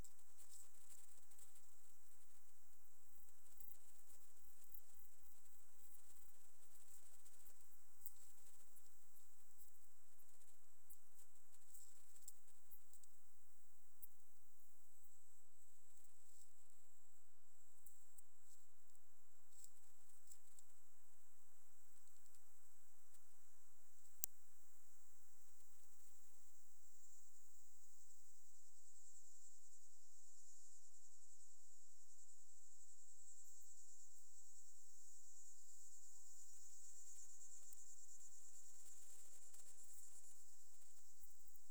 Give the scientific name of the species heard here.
Steropleurus andalusius